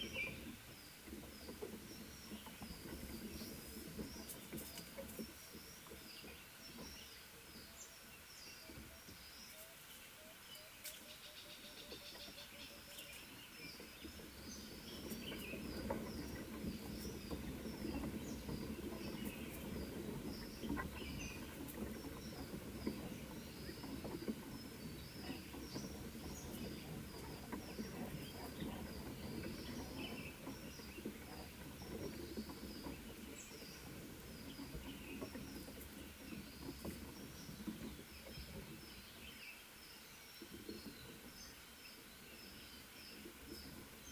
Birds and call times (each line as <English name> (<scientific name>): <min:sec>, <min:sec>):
Mountain Wagtail (Motacilla clara): 0:06.8, 0:20.4
Northern Puffback (Dryoscopus gambensis): 0:11.7